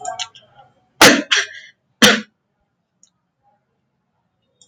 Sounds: Throat clearing